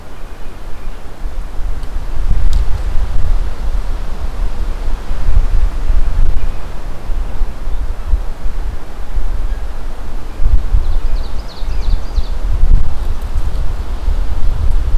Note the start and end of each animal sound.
[10.71, 12.42] Ovenbird (Seiurus aurocapilla)

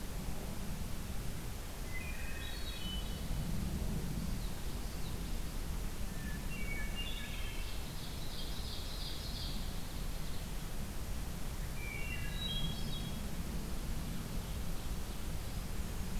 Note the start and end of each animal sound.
[1.81, 2.61] Wood Thrush (Hylocichla mustelina)
[1.96, 3.42] Hermit Thrush (Catharus guttatus)
[3.94, 5.49] Common Yellowthroat (Geothlypis trichas)
[5.99, 7.77] Hermit Thrush (Catharus guttatus)
[7.51, 9.84] Ovenbird (Seiurus aurocapilla)
[11.66, 12.51] Wood Thrush (Hylocichla mustelina)
[11.98, 13.40] Hermit Thrush (Catharus guttatus)

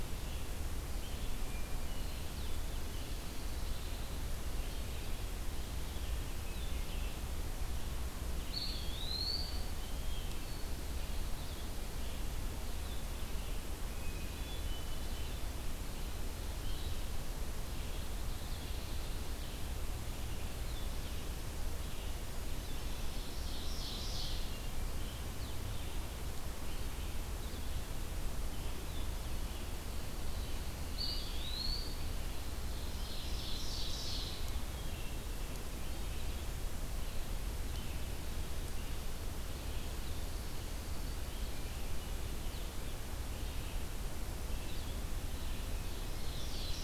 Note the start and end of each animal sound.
[0.00, 46.84] Red-eyed Vireo (Vireo olivaceus)
[1.31, 2.36] Hermit Thrush (Catharus guttatus)
[3.10, 4.37] Pine Warbler (Setophaga pinus)
[8.22, 9.76] Eastern Wood-Pewee (Contopus virens)
[9.95, 10.85] Hermit Thrush (Catharus guttatus)
[13.82, 15.30] Hermit Thrush (Catharus guttatus)
[22.43, 24.70] Ovenbird (Seiurus aurocapilla)
[25.34, 45.09] Blue-headed Vireo (Vireo solitarius)
[30.79, 32.07] Eastern Wood-Pewee (Contopus virens)
[32.42, 34.52] Ovenbird (Seiurus aurocapilla)
[34.20, 35.34] Hermit Thrush (Catharus guttatus)
[45.46, 46.84] Ovenbird (Seiurus aurocapilla)

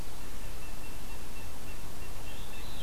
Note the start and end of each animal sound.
[0.00, 2.82] Blue Jay (Cyanocitta cristata)
[2.31, 2.82] Veery (Catharus fuscescens)

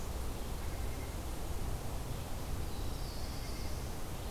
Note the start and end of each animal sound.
[0.43, 1.32] White-breasted Nuthatch (Sitta carolinensis)
[2.31, 4.00] Black-throated Blue Warbler (Setophaga caerulescens)
[3.23, 4.04] White-breasted Nuthatch (Sitta carolinensis)

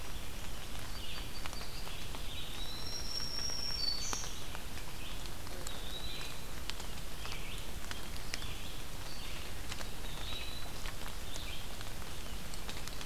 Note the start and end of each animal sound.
[0.00, 13.06] Red-eyed Vireo (Vireo olivaceus)
[0.69, 1.97] Song Sparrow (Melospiza melodia)
[2.18, 3.22] Eastern Wood-Pewee (Contopus virens)
[2.60, 4.49] Black-throated Green Warbler (Setophaga virens)
[5.45, 6.57] Eastern Wood-Pewee (Contopus virens)
[9.86, 10.73] Eastern Wood-Pewee (Contopus virens)

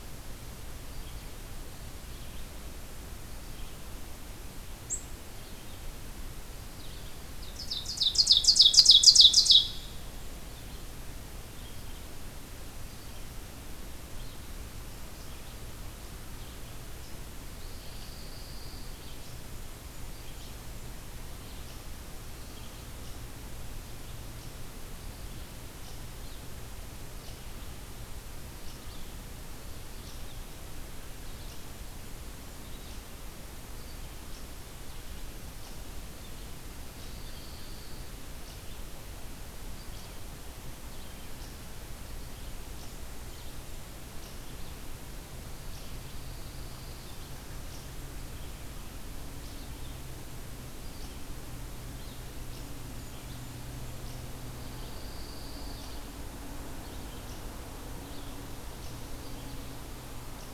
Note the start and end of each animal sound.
[0.00, 22.90] Red-eyed Vireo (Vireo olivaceus)
[4.77, 5.17] Ovenbird (Seiurus aurocapilla)
[7.34, 9.92] Ovenbird (Seiurus aurocapilla)
[15.10, 37.24] unknown mammal
[17.49, 19.06] Pine Warbler (Setophaga pinus)
[36.78, 38.09] Pine Warbler (Setophaga pinus)
[38.31, 60.54] unknown mammal
[38.36, 60.54] Red-eyed Vireo (Vireo olivaceus)
[45.73, 47.21] Pine Warbler (Setophaga pinus)
[52.33, 53.96] Blackburnian Warbler (Setophaga fusca)
[54.51, 56.12] Pine Warbler (Setophaga pinus)

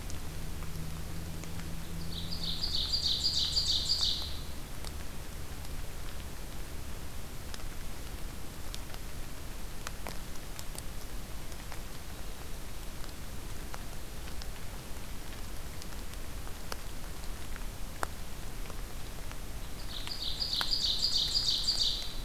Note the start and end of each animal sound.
[2.00, 4.44] Ovenbird (Seiurus aurocapilla)
[19.75, 22.24] Ovenbird (Seiurus aurocapilla)

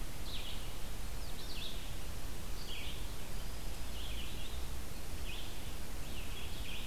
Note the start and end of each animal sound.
[0.00, 6.86] Red-eyed Vireo (Vireo olivaceus)

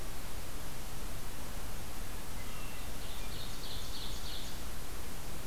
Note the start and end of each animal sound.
[2.07, 3.44] Hermit Thrush (Catharus guttatus)
[2.50, 4.73] Ovenbird (Seiurus aurocapilla)

